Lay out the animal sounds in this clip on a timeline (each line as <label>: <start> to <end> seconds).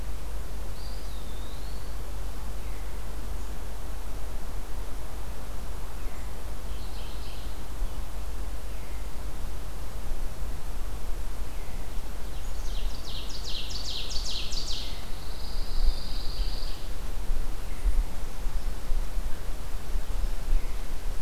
Eastern Wood-Pewee (Contopus virens): 0.6 to 2.0 seconds
Mourning Warbler (Geothlypis philadelphia): 6.5 to 7.6 seconds
Ovenbird (Seiurus aurocapilla): 12.2 to 14.9 seconds
Pine Warbler (Setophaga pinus): 15.0 to 16.8 seconds